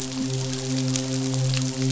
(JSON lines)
{"label": "biophony, midshipman", "recorder": "SoundTrap 500"}